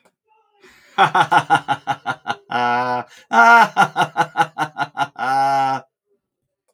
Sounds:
Laughter